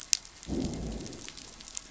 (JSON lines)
{"label": "biophony, growl", "recorder": "SoundTrap 500"}